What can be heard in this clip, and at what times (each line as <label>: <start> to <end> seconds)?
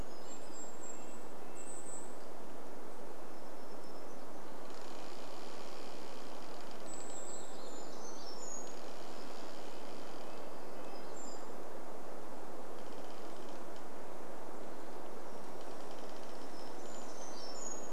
Golden-crowned Kinglet song: 0 to 2 seconds
Red-breasted Nuthatch song: 0 to 2 seconds
warbler song: 0 to 4 seconds
tree creak: 4 to 10 seconds
warbler song: 6 to 10 seconds
Brown Creeper call: 6 to 12 seconds
Red-breasted Nuthatch song: 8 to 12 seconds
unidentified sound: 10 to 12 seconds
tree creak: 12 to 18 seconds
Brown Creeper call: 16 to 18 seconds
Varied Thrush song: 16 to 18 seconds